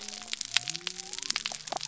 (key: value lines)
label: biophony
recorder: SoundTrap 300